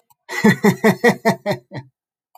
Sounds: Laughter